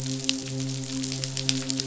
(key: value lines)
label: biophony, midshipman
recorder: SoundTrap 500